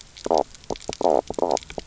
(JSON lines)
{"label": "biophony, knock croak", "recorder": "SoundTrap 300"}